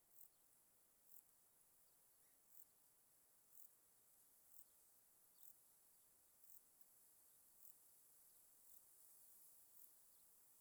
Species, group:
Euchorthippus elegantulus, Orthoptera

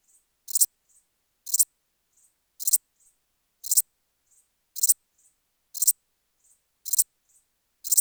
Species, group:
Pholidoptera transsylvanica, Orthoptera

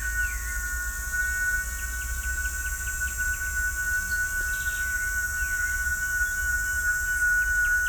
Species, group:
Quesada gigas, Cicadidae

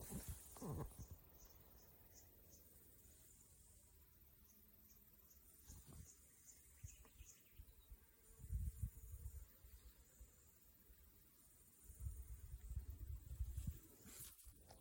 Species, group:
Yoyetta timothyi, Cicadidae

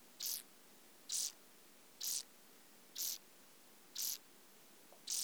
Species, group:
Chorthippus brunneus, Orthoptera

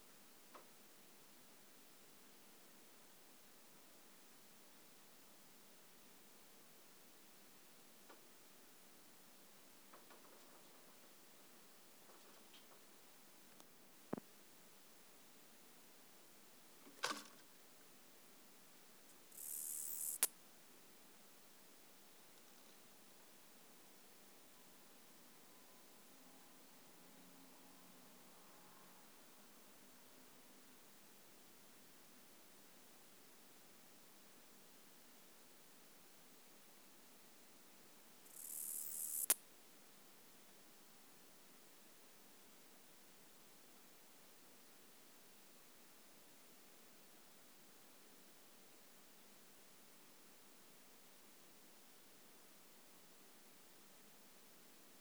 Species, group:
Acrometopa macropoda, Orthoptera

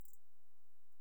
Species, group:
Canariola emarginata, Orthoptera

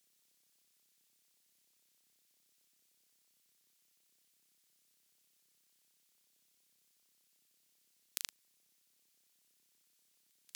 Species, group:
Thyreonotus corsicus, Orthoptera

